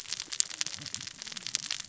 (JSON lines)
{"label": "biophony, cascading saw", "recorder": "SoundTrap 600 or HydroMoth"}